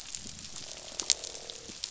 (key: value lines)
label: biophony, croak
recorder: SoundTrap 500